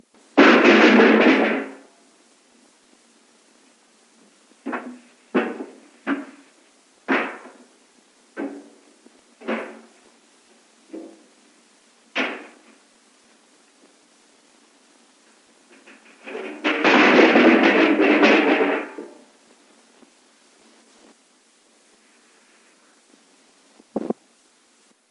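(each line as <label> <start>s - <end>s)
A metallic object is thrown onto a hard floor, creating rhythmic thudding and irregular loud tones. 0.3s - 1.8s
Slow, irregular distant footsteps on a hard floor with a faint, abrupt sound. 4.6s - 12.5s
A metallic object is thrown onto a hard floor, creating rhythmic thudding and irregular loud tones. 16.3s - 19.0s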